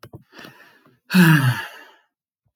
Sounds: Sigh